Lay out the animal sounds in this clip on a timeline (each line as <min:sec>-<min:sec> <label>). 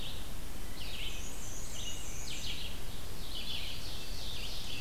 0:00.0-0:03.9 Red-eyed Vireo (Vireo olivaceus)
0:00.9-0:02.8 Black-and-white Warbler (Mniotilta varia)
0:02.9-0:04.8 Ovenbird (Seiurus aurocapilla)